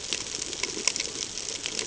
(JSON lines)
{"label": "ambient", "recorder": "HydroMoth"}